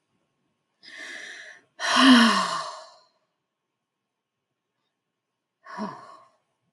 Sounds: Sigh